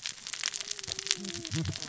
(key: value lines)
label: biophony, cascading saw
recorder: SoundTrap 600 or HydroMoth